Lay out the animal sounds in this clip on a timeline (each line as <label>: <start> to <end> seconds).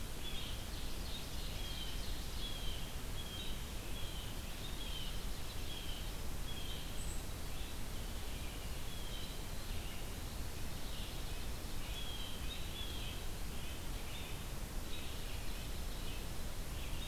Blue Jay (Cyanocitta cristata): 0.0 to 0.6 seconds
Red-eyed Vireo (Vireo olivaceus): 0.0 to 17.1 seconds
Ovenbird (Seiurus aurocapilla): 0.5 to 2.8 seconds
Blue Jay (Cyanocitta cristata): 1.6 to 7.0 seconds
Blue Jay (Cyanocitta cristata): 8.7 to 9.5 seconds
Red-breasted Nuthatch (Sitta canadensis): 11.2 to 16.3 seconds
Blue Jay (Cyanocitta cristata): 11.7 to 13.2 seconds